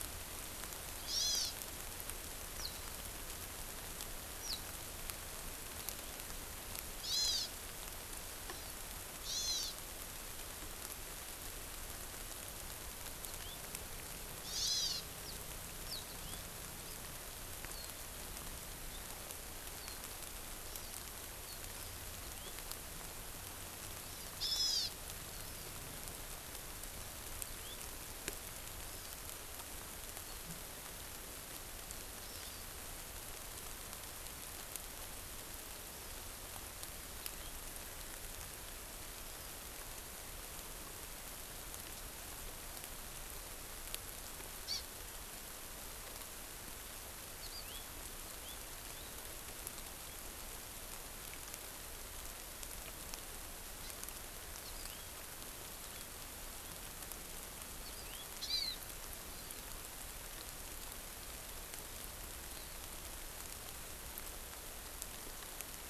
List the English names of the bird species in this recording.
Hawaiian Hawk, Hawaii Amakihi, House Finch